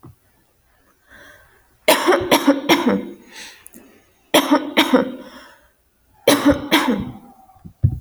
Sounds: Cough